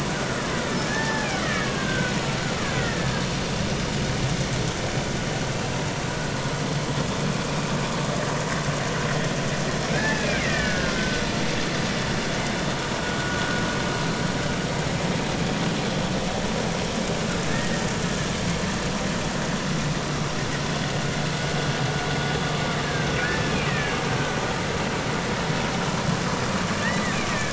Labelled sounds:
1.4	2.1	killer whale, Bigg's (transient), 0.99 to 2.1 kHz
2.6	3.1	killer whale, Bigg's (transient), 1.3 to 2.0 kHz
9.9	11.2	killer whale, Bigg's (transient), 1.3 to 2.7 kHz
13.2	13.5	vessel noise, 1.4 to 1.6 kHz
17.5	17.8	killer whale, Bigg's (transient), 1.6 to 1.9 kHz
22.8	24.0	killer whale, Bigg's (transient), 1.5 to 2.5 kHz
26.8	27.5	killer whale, Bigg's (transient), 1.6 to 2.1 kHz

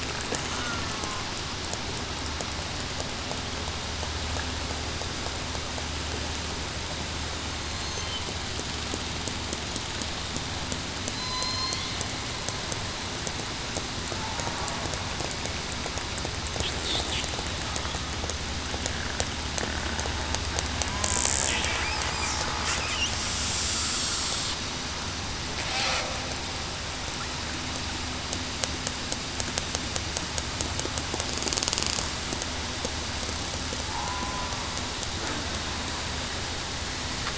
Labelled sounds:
0.5	0.8	killer whale, southern resident, 1.3 to 1.5 kHz
7.6	8.0	killer whale, southern resident, 4.1 to 4.3 kHz
11.2	11.7	killer whale, southern resident, 0.98 to 1.1 kHz
34.0	34.5	killer whale, southern resident, 0.96 to 1.1 kHz

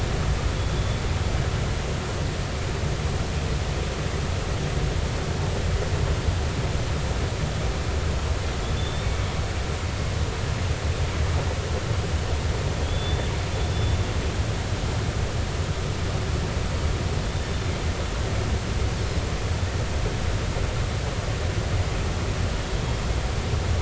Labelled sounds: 8.8	9.1	killer whale, northern resident, 3.4 to 3.7 kHz
12.8	13.3	killer whale, northern resident, 3.2 to 3.6 kHz
13.7	14.0	killer whale, northern resident, 3.4 to 3.6 kHz

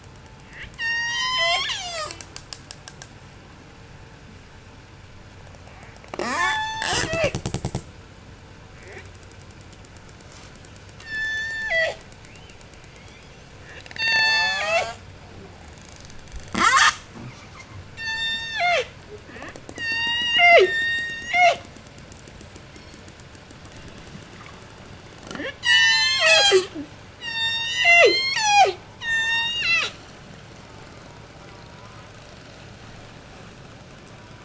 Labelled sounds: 0.3	3.2	killer whale, J pod, 0.11 to 8.0 kHz
6.0	7.9	killer whale, J pod, 0 to 8.0 kHz
10.8	12.1	killer whale, J pod, call S03, 0.21 to 8.0 kHz
12.1	15.1	killer whale, J pod, 0.16 to 8.0 kHz
16.4	17.9	killer whale, J pod, 0.07 to 8.0 kHz
17.8	19.0	killer whale, J pod, call S03, 0.31 to 8.0 kHz
19.7	21.8	killer whale, J pod, call S03, 0.11 to 8.0 kHz
22.5	23.2	killer whale, J pod, 1.8 to 5.8 kHz
25.2	30.2	killer whale, J pod, call S03, 0.08 to 8.0 kHz
30.6	32.6	killer whale, J pod, call S04, 0.62 to 2.5 kHz
33.8	34.4	killer whale, J pod, call S04, 0.67 to 1.6 kHz

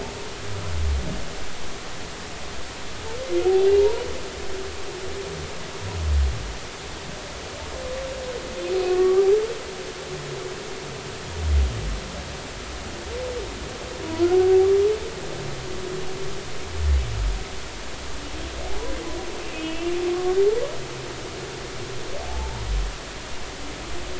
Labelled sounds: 3.8	4.0	humpback whale, 0.86 to 1.0 kHz
8.9	9.3	humpback whale, 1.1 to 1.2 kHz
14.0	14.3	humpback whale, 0.93 to 1.1 kHz
18.7	20.0	humpback whale, 0.80 to 3.1 kHz

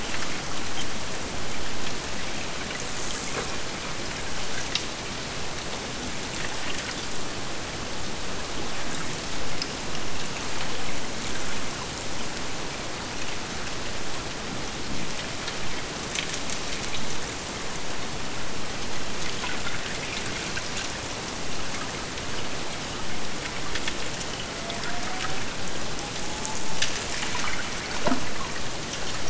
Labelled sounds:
24.2	27.1	killer whale, Bigg's (transient), AT1 transient, 0.59 to 2.8 kHz

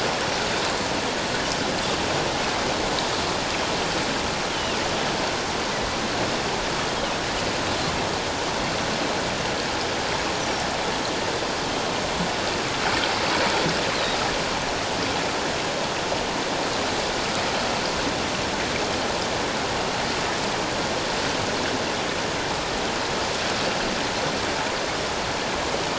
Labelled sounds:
4.5	4.8	Pacific white-sided dolphin, 2.7 to 3.3 kHz

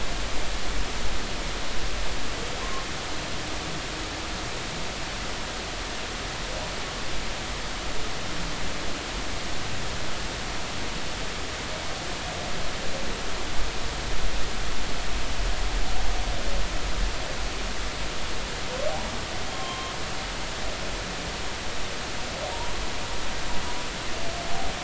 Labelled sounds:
19.5	19.9	humpback whale, 0.99 to 1.1 kHz

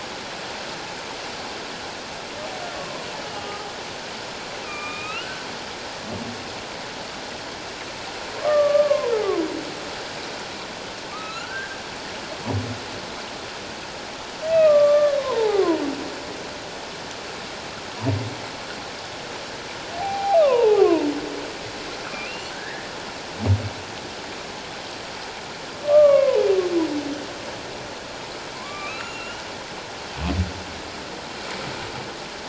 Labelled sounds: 2.7	3.7	humpback whale, 0.97 to 3.0 kHz
4.6	5.5	humpback whale, 1.1 to 3.1 kHz
8.3	9.1	humpback whale, 0.91 to 1.2 kHz
11.1	11.8	humpback whale, 1.1 to 4.2 kHz
14.4	15.8	humpback whale, 0.78 to 2.0 kHz
20.0	21.1	humpback whale, 0.78 to 2.9 kHz
22.3	22.9	humpback whale, 1.5 to 2.9 kHz
25.8	26.5	humpback whale, 0.81 to 2.8 kHz
28.5	29.4	humpback whale, 0.91 to 3.0 kHz

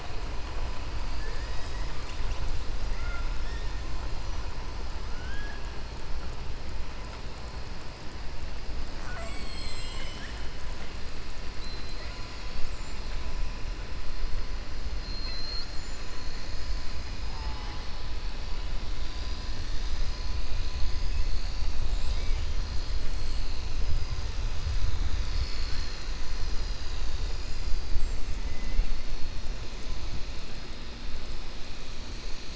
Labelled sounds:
2.9	3.3	killer whale, 1.3 to 2.8 kHz
5.1	5.7	killer whale, 1.4 to 3.4 kHz

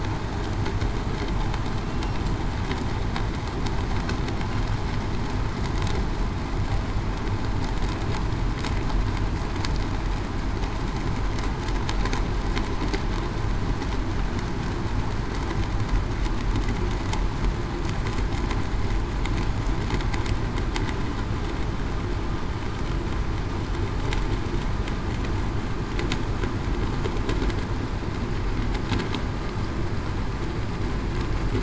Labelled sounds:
1.8	2.2	killer whale, southern resident, 2.7 to 2.8 kHz

